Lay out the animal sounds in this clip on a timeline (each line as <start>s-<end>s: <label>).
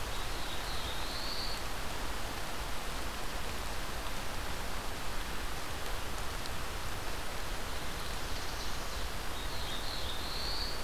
0.0s-1.8s: Black-throated Blue Warbler (Setophaga caerulescens)
7.7s-9.4s: Ovenbird (Seiurus aurocapilla)
9.1s-10.8s: Black-throated Blue Warbler (Setophaga caerulescens)